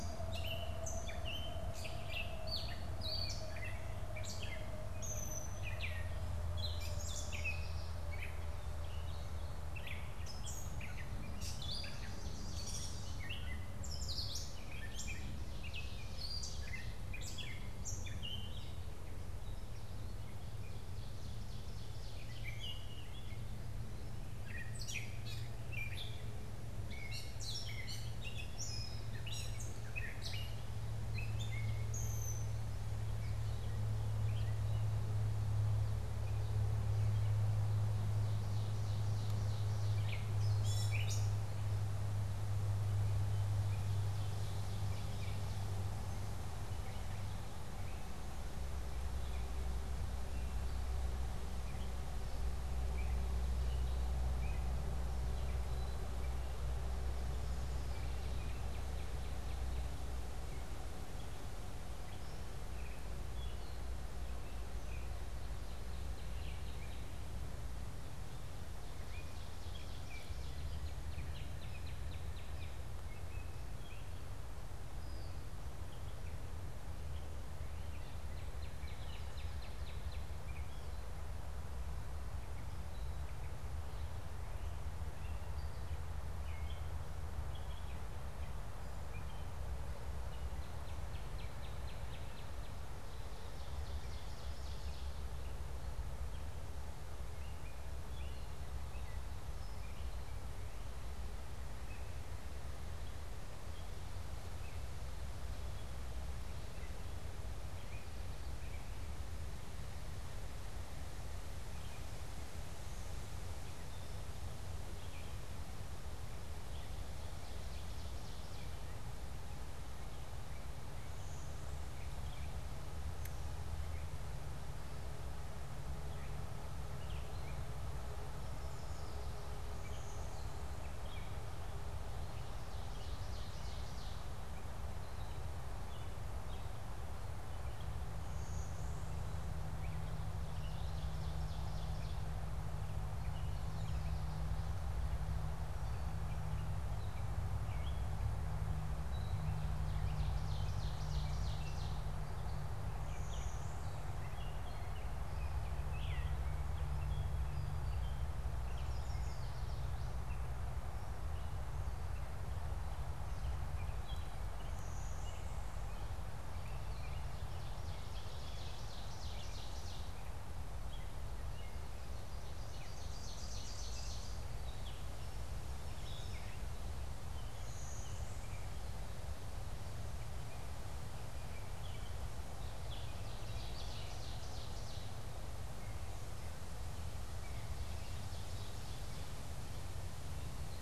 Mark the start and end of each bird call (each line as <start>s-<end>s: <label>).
0.0s-32.8s: Gray Catbird (Dumetella carolinensis)
6.7s-8.1s: Yellow Warbler (Setophaga petechia)
11.6s-13.6s: Ovenbird (Seiurus aurocapilla)
37.9s-40.1s: Ovenbird (Seiurus aurocapilla)
39.9s-41.5s: Gray Catbird (Dumetella carolinensis)
43.3s-45.7s: Ovenbird (Seiurus aurocapilla)
46.9s-56.8s: Gray Catbird (Dumetella carolinensis)
57.7s-60.0s: Northern Cardinal (Cardinalis cardinalis)
62.0s-65.1s: Gray Catbird (Dumetella carolinensis)
65.4s-67.3s: Northern Cardinal (Cardinalis cardinalis)
68.7s-70.8s: Ovenbird (Seiurus aurocapilla)
69.8s-72.9s: Northern Cardinal (Cardinalis cardinalis)
77.7s-80.5s: Northern Cardinal (Cardinalis cardinalis)
85.0s-89.7s: Gray Catbird (Dumetella carolinensis)
90.1s-92.8s: Northern Cardinal (Cardinalis cardinalis)
93.0s-95.4s: Ovenbird (Seiurus aurocapilla)
96.2s-116.9s: Gray Catbird (Dumetella carolinensis)
117.0s-118.9s: Ovenbird (Seiurus aurocapilla)
119.4s-131.7s: Gray Catbird (Dumetella carolinensis)
121.1s-122.2s: Blue-winged Warbler (Vermivora cyanoptera)
128.4s-129.6s: Yellow Warbler (Setophaga petechia)
129.7s-131.1s: Blue-winged Warbler (Vermivora cyanoptera)
132.5s-134.4s: Ovenbird (Seiurus aurocapilla)
134.9s-138.0s: Gray Catbird (Dumetella carolinensis)
138.2s-139.5s: Blue-winged Warbler (Vermivora cyanoptera)
140.4s-142.4s: Ovenbird (Seiurus aurocapilla)
142.7s-186.7s: Gray Catbird (Dumetella carolinensis)
149.7s-152.2s: Ovenbird (Seiurus aurocapilla)
153.0s-154.3s: Blue-winged Warbler (Vermivora cyanoptera)
158.7s-160.0s: Yellow Warbler (Setophaga petechia)
164.7s-165.8s: Blue-winged Warbler (Vermivora cyanoptera)
167.1s-170.2s: Ovenbird (Seiurus aurocapilla)
172.3s-174.4s: Ovenbird (Seiurus aurocapilla)
175.5s-176.6s: Yellow Warbler (Setophaga petechia)
177.4s-178.8s: Blue-winged Warbler (Vermivora cyanoptera)
182.7s-185.3s: Ovenbird (Seiurus aurocapilla)
187.5s-189.5s: Ovenbird (Seiurus aurocapilla)